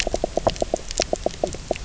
{"label": "biophony, knock croak", "recorder": "SoundTrap 300"}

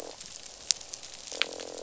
{"label": "biophony, croak", "recorder": "SoundTrap 500"}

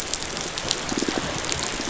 {"label": "biophony", "recorder": "SoundTrap 500"}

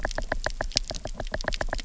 {"label": "biophony, knock", "recorder": "SoundTrap 300"}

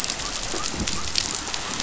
{"label": "biophony", "recorder": "SoundTrap 500"}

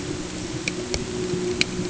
{"label": "anthrophony, boat engine", "recorder": "HydroMoth"}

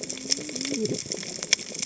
{"label": "biophony, cascading saw", "recorder": "HydroMoth"}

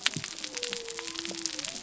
{"label": "biophony", "recorder": "SoundTrap 300"}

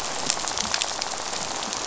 {"label": "biophony, rattle", "recorder": "SoundTrap 500"}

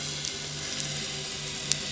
{"label": "anthrophony, boat engine", "recorder": "SoundTrap 300"}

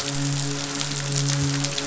{"label": "biophony, midshipman", "recorder": "SoundTrap 500"}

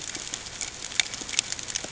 {"label": "ambient", "recorder": "HydroMoth"}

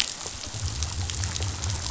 {"label": "biophony", "recorder": "SoundTrap 500"}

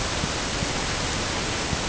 {"label": "ambient", "recorder": "HydroMoth"}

